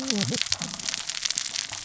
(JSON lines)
{"label": "biophony, cascading saw", "recorder": "SoundTrap 600 or HydroMoth"}